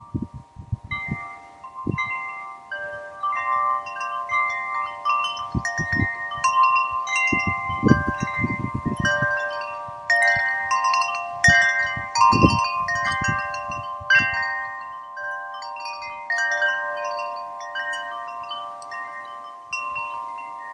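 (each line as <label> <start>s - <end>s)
A slight breeze is heard in the background. 0.0s - 20.7s
Metal wind chimes are moved by the wind, producing music without a discernible rhythm. 0.0s - 20.7s
Wind blowing. 0.1s - 1.2s
Wind blowing. 1.8s - 2.1s
Wind blowing. 5.5s - 6.5s
Wind blowing. 7.3s - 9.3s
Wind blowing. 11.5s - 14.4s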